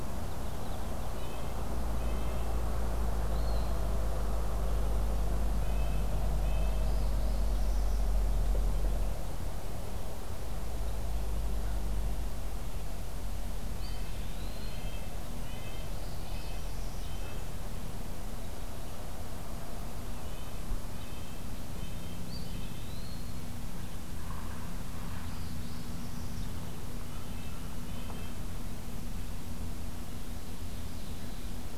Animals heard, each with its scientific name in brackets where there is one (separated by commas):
Ovenbird (Seiurus aurocapilla), Northern Parula (Setophaga americana), Red-breasted Nuthatch (Sitta canadensis), American Crow (Corvus brachyrhynchos), American Goldfinch (Spinus tristis), Eastern Wood-Pewee (Contopus virens)